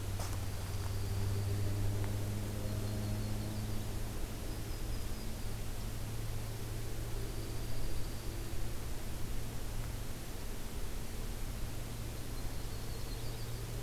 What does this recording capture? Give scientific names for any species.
Junco hyemalis, Setophaga coronata